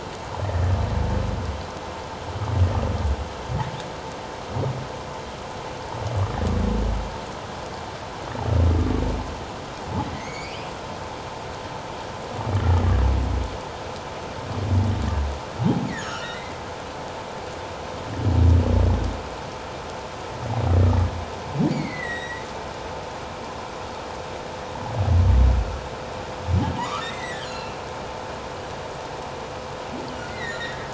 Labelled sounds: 10.1	10.7	humpback whale, 1.9 to 7.2 kHz
15.9	16.6	humpback whale, 1.2 to 7.2 kHz
21.7	22.4	humpback whale, 1.8 to 7.9 kHz
26.8	27.8	humpback whale, 0.88 to 4.3 kHz
30.3	30.9	humpback whale, 1.6 to 4.2 kHz

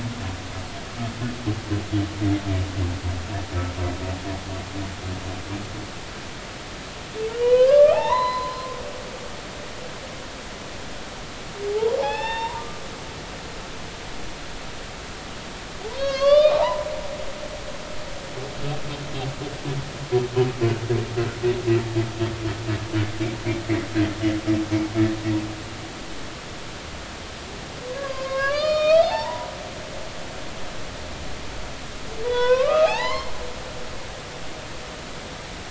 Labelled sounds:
7.3	8.8	humpback whale, 0.80 to 4.1 kHz
11.7	12.8	humpback whale, 0.80 to 5.5 kHz
15.9	16.9	humpback whale, 0.80 to 5.6 kHz
28.0	29.5	humpback whale, 0.80 to 6.8 kHz
32.2	33.3	humpback whale, 0.80 to 4.4 kHz

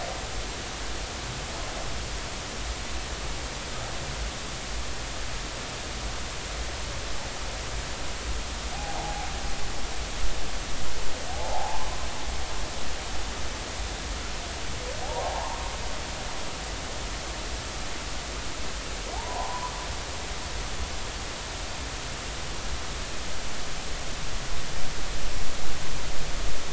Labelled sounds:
8.7	9.3	humpback whale, 0.80 to 0.96 kHz
11.3	11.8	humpback whale, 0.80 to 0.93 kHz
15.0	15.6	humpback whale, 0.80 to 1.2 kHz
19.1	19.7	humpback whale, 0.80 to 1.1 kHz

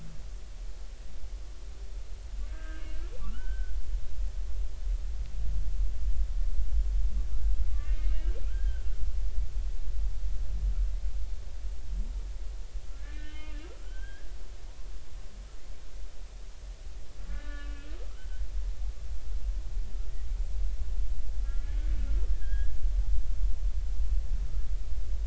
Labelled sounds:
2.4	2.9	humpback whale, 1.2 to 1.8 kHz
3.3	3.7	humpback whale, 1.3 to 3.1 kHz
7.8	8.9	humpback whale, 1.3 to 3.0 kHz
13.0	14.3	humpback whale, 1.2 to 3.3 kHz
17.3	18.4	humpback whale, 1.1 to 3.0 kHz
21.4	21.7	humpback whale, 1.3 to 1.4 kHz
22.3	22.7	humpback whale, 1.5 to 3.4 kHz

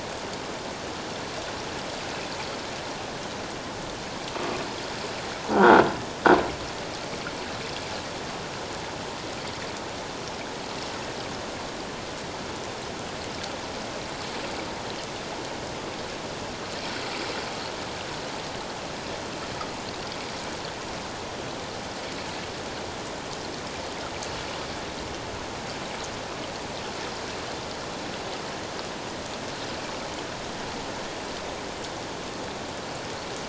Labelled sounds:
5.5	5.8	croaking sound likely from a nearby submerged object, 1.3 to 1.6 kHz

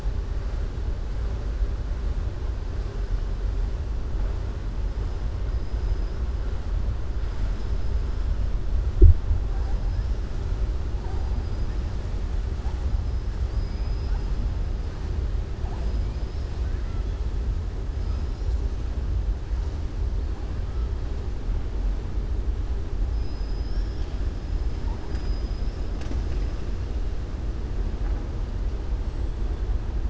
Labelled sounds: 13.4	14.2	killer whale, southern resident, 4.5 to 5.6 kHz

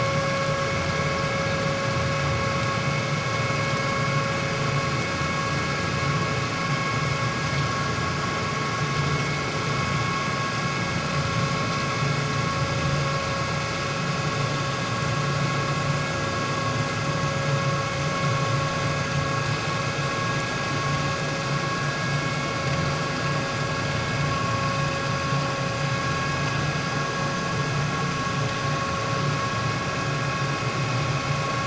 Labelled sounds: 22.0	22.3	vessel noise, 2.1 to 2.2 kHz

